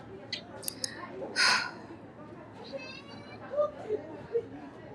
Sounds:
Sigh